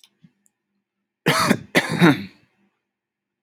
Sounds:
Cough